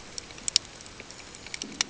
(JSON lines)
{"label": "ambient", "recorder": "HydroMoth"}